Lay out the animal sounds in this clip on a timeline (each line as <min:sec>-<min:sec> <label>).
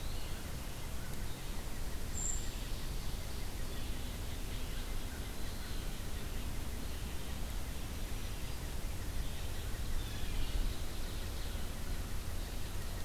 0:00.3-0:13.0 unidentified call
0:01.8-0:03.7 Ovenbird (Seiurus aurocapilla)
0:02.0-0:02.7 Brown Creeper (Certhia americana)
0:09.8-0:10.7 Blue Jay (Cyanocitta cristata)